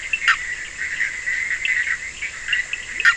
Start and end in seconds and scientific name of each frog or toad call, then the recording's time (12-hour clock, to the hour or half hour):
0.0	3.1	Boana bischoffi
2.9	3.1	Leptodactylus latrans
3:30am